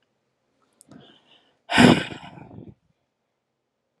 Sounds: Sigh